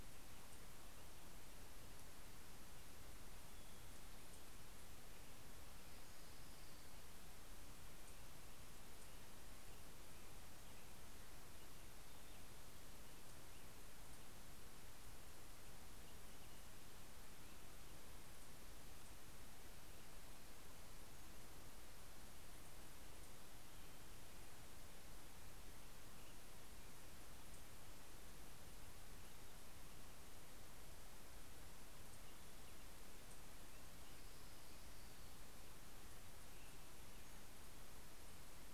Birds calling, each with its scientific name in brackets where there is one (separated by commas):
Pacific-slope Flycatcher (Empidonax difficilis), Orange-crowned Warbler (Leiothlypis celata)